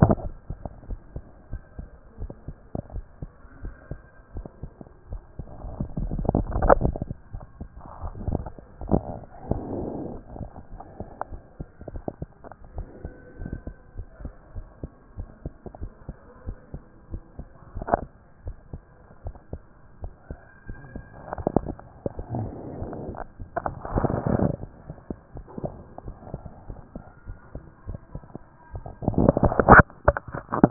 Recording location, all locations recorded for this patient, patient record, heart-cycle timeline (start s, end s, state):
pulmonary valve (PV)
pulmonary valve (PV)+tricuspid valve (TV)+mitral valve (MV)
#Age: Child
#Sex: Female
#Height: 101.0 cm
#Weight: 17.4 kg
#Pregnancy status: False
#Murmur: Absent
#Murmur locations: nan
#Most audible location: nan
#Systolic murmur timing: nan
#Systolic murmur shape: nan
#Systolic murmur grading: nan
#Systolic murmur pitch: nan
#Systolic murmur quality: nan
#Diastolic murmur timing: nan
#Diastolic murmur shape: nan
#Diastolic murmur grading: nan
#Diastolic murmur pitch: nan
#Diastolic murmur quality: nan
#Outcome: Normal
#Campaign: 2014 screening campaign
0.00	13.83	unannotated
13.83	13.96	diastole
13.96	14.08	S1
14.08	14.22	systole
14.22	14.32	S2
14.32	14.56	diastole
14.56	14.66	S1
14.66	14.82	systole
14.82	14.90	S2
14.90	15.18	diastole
15.18	15.28	S1
15.28	15.44	systole
15.44	15.54	S2
15.54	15.80	diastole
15.80	15.92	S1
15.92	16.08	systole
16.08	16.16	S2
16.16	16.46	diastole
16.46	16.56	S1
16.56	16.72	systole
16.72	16.82	S2
16.82	17.12	diastole
17.12	17.22	S1
17.22	17.38	systole
17.38	17.48	S2
17.48	17.76	diastole
17.76	30.70	unannotated